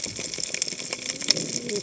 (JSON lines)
{"label": "biophony, cascading saw", "recorder": "HydroMoth"}